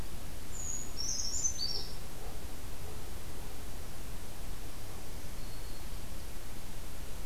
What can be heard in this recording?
Brown Creeper, Black-throated Green Warbler